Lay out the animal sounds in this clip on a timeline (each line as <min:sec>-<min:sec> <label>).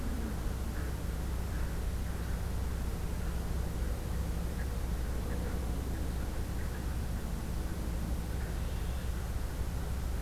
0:08.4-0:09.1 Red-winged Blackbird (Agelaius phoeniceus)